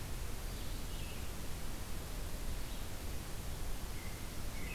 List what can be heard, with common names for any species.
Blue-headed Vireo, American Robin